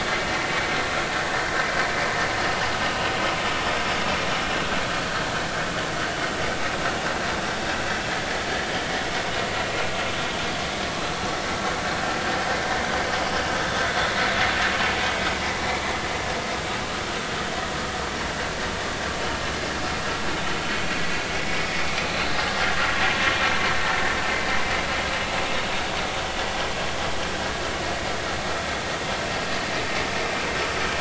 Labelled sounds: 2.9	3.1	vessel noise, 2.7 to 2.9 kHz

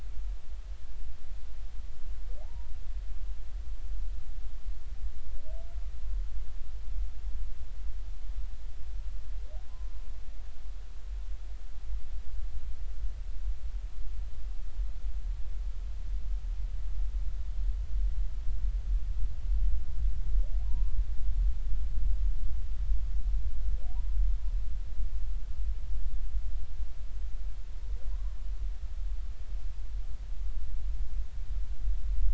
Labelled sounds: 2.4	2.7	humpback whale, 0.80 to 0.99 kHz
20.6	21.0	humpback whale, 0.86 to 1.1 kHz
28.1	28.4	humpback whale, 0.86 to 1.2 kHz

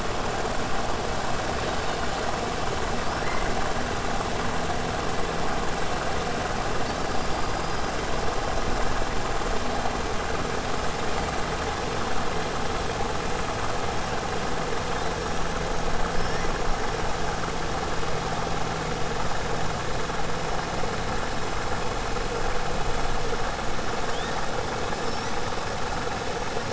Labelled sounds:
7.4	7.9	killer whale, 4.1 to 5.1 kHz

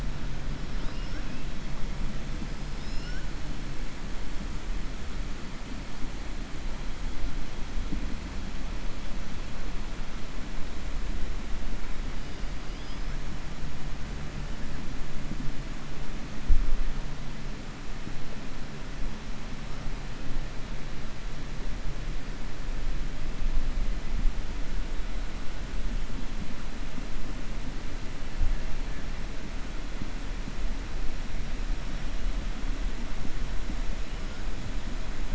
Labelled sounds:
0.7	1.4	killer whale, 1.1 to 5.5 kHz
2.6	3.3	killer whale, 1.4 to 6.9 kHz

